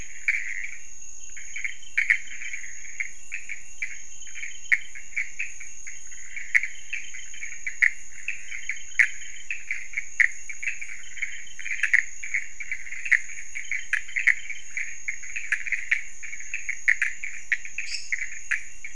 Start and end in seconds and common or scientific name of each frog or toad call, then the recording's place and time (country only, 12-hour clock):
0.0	18.9	pointedbelly frog
0.0	18.9	Pithecopus azureus
17.8	18.4	lesser tree frog
Brazil, 1:30am